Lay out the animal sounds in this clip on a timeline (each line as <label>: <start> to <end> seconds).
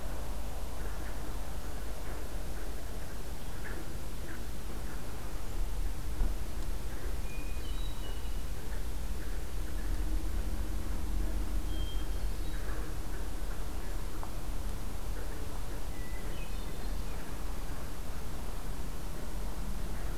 Hermit Thrush (Catharus guttatus): 7.2 to 8.6 seconds
Hermit Thrush (Catharus guttatus): 11.6 to 12.8 seconds
Hermit Thrush (Catharus guttatus): 15.9 to 17.0 seconds